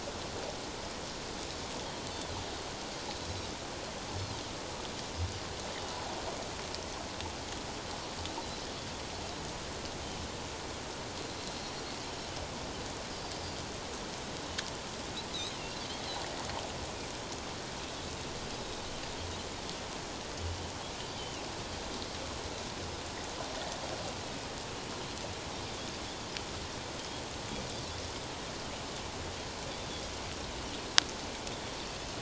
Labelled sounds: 1.8	2.1	Pacific white-sided dolphin, 3.0 to 3.4 kHz
13.3	13.6	Pacific white-sided dolphin, 4.6 to 4.8 kHz
21.2	21.4	Pacific white-sided dolphin, 2.6 to 3.2 kHz

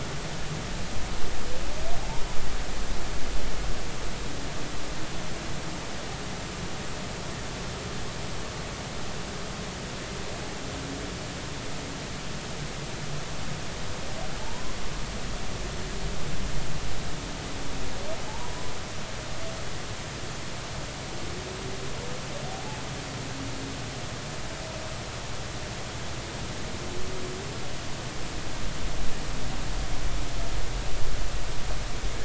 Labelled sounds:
14.4	14.7	humpback whale, 0.83 to 1.1 kHz
18.3	18.6	humpback whale, 0.80 to 1.0 kHz

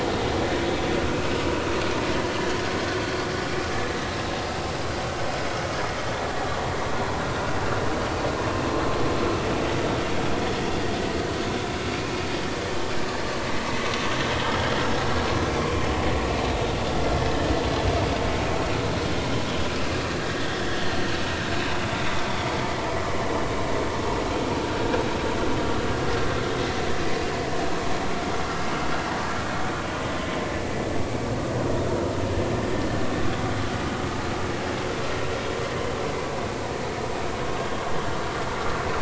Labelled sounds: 0.1	0.3	vessel noise, 3.6 to 3.8 kHz
15.6	15.9	vessel noise, 0.96 to 1.1 kHz
20.2	20.5	vessel noise, 1.8 to 2.0 kHz

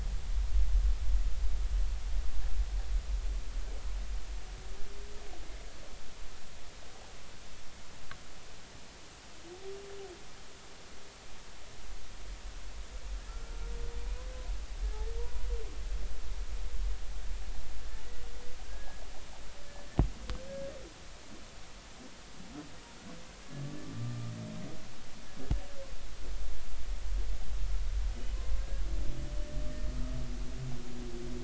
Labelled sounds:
13.3	13.5	humpback whale, 1.3 to 1.5 kHz
18.7	19.0	humpback whale, 1.5 to 1.7 kHz
23.9	24.3	humpback whale, 1.2 to 1.3 kHz

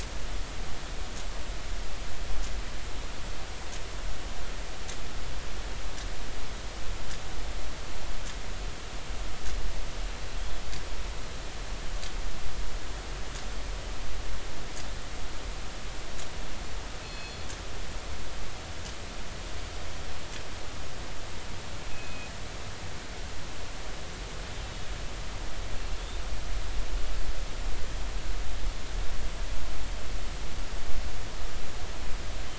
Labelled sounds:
17.0	17.4	killer whale, northern resident, G clan, call N24ii, 2.5 to 4.4 kHz
21.9	22.3	killer whale, northern resident, G clan, call N24ii, 2.4 to 2.6 kHz

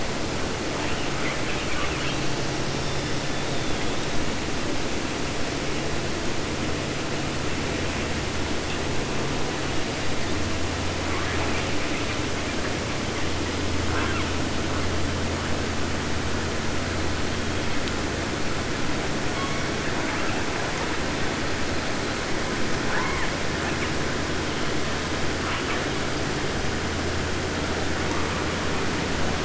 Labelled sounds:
0.7	2.3	killer whale, southern resident, 0.50 to 4.0 kHz
2.6	4.2	killer whale, 1.2 to 6.4 kHz
11.0	14.9	killer whale, 0.47 to 3.7 kHz
17.2	18.1	killer whale, 0.61 to 4.2 kHz
19.3	21.4	killer whale, 0.39 to 7.0 kHz
22.5	24.0	killer whale, 0.33 to 5.3 kHz
25.4	25.9	killer whale, 0.63 to 3.8 kHz

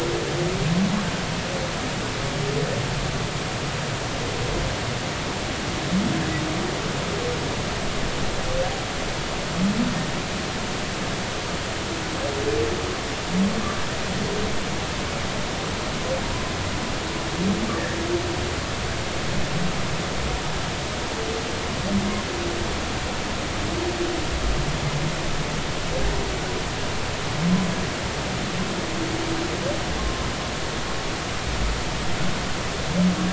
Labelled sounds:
16.2	16.5	humpback whale, 0.93 to 1.1 kHz
30.0	30.2	humpback whale, 1.0 to 1.1 kHz

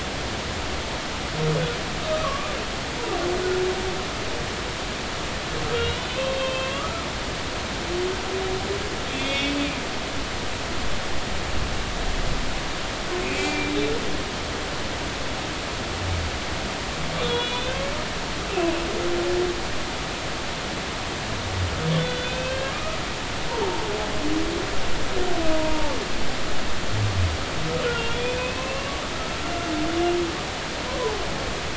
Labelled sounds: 2.2	2.6	humpback whale, 1.0 to 1.3 kHz
5.7	7.1	humpback whale, 1.1 to 3.2 kHz
9.1	9.6	humpback whale, 2.1 to 3.7 kHz
13.2	13.9	humpback whale, 2.2 to 3.9 kHz
17.2	17.8	humpback whale, 2.4 to 4.1 kHz
19.5	19.7	humpback whale, 2.5 to 2.8 kHz
22.0	22.7	humpback whale, 1.4 to 3.6 kHz
23.6	23.9	humpback whale, 0.80 to 0.96 kHz
25.5	25.9	humpback whale, 0.83 to 0.99 kHz
27.9	28.9	humpback whale, 0.99 to 3.6 kHz
30.9	31.2	humpback whale, 0.80 to 1.1 kHz

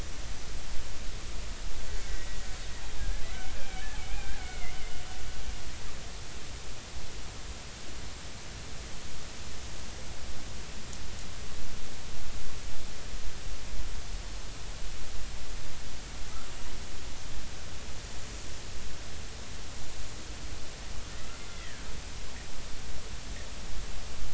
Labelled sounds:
2.1	2.4	killer whale, Bigg's (transient), 1.9 to 2.0 kHz
3.0	3.5	killer whale, Bigg's (transient), 1.5 to 2.4 kHz
4.0	4.7	killer whale, Bigg's (transient), 1.4 to 2.5 kHz
21.4	21.9	killer whale, Bigg's (transient), 1.5 to 3.6 kHz

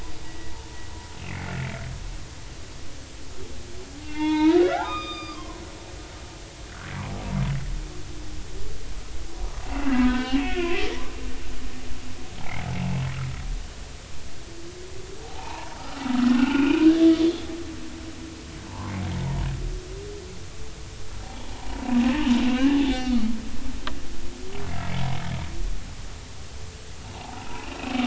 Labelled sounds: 1.3	1.5	humpback whale, 2.0 to 2.4 kHz
4.0	5.6	humpback whale, 0.80 to 5.0 kHz
9.6	10.7	humpback whale, 1.2 to 3.4 kHz
12.4	12.7	humpback whale, 0.80 to 0.99 kHz
15.2	15.7	humpback whale, 0.80 to 1.1 kHz
16.1	17.5	humpback whale, 1.2 to 3.5 kHz
18.7	18.9	humpback whale, 0.83 to 1.2 kHz
21.2	21.6	humpback whale, 0.80 to 0.99 kHz
22.5	23.3	humpback whale, 1.1 to 3.7 kHz
27.1	27.7	humpback whale, 0.80 to 1.1 kHz

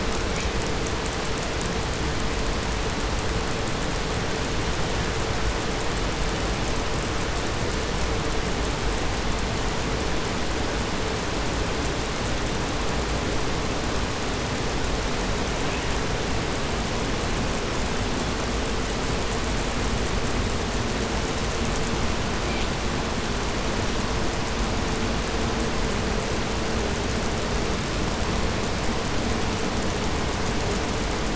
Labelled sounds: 15.5	16.1	killer whale, 1.8 to 3.7 kHz
21.8	22.8	killer whale, 1.1 to 8.0 kHz

